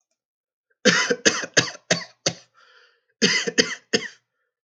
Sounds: Cough